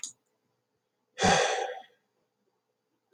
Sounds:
Sigh